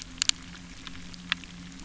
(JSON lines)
{"label": "anthrophony, boat engine", "recorder": "SoundTrap 300"}